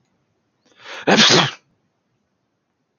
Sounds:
Sneeze